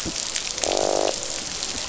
{"label": "biophony, croak", "recorder": "SoundTrap 500"}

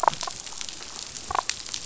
{"label": "biophony", "recorder": "SoundTrap 500"}
{"label": "biophony, damselfish", "recorder": "SoundTrap 500"}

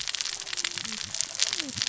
{"label": "biophony, cascading saw", "recorder": "SoundTrap 600 or HydroMoth"}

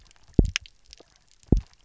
{"label": "biophony, double pulse", "recorder": "SoundTrap 300"}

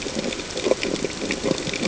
{"label": "ambient", "recorder": "HydroMoth"}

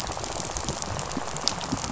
{"label": "biophony, rattle", "recorder": "SoundTrap 500"}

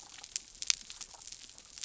{"label": "biophony", "recorder": "SoundTrap 300"}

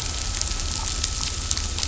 {"label": "anthrophony, boat engine", "recorder": "SoundTrap 500"}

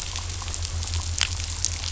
{"label": "anthrophony, boat engine", "recorder": "SoundTrap 500"}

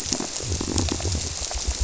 {"label": "biophony, squirrelfish (Holocentrus)", "recorder": "SoundTrap 300"}
{"label": "biophony", "recorder": "SoundTrap 300"}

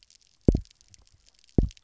{"label": "biophony, double pulse", "recorder": "SoundTrap 300"}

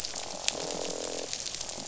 {"label": "biophony, croak", "recorder": "SoundTrap 500"}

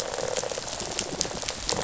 {"label": "biophony, rattle response", "recorder": "SoundTrap 500"}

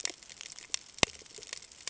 {"label": "ambient", "recorder": "HydroMoth"}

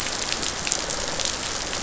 {"label": "biophony", "recorder": "SoundTrap 500"}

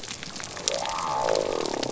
{"label": "biophony", "recorder": "SoundTrap 300"}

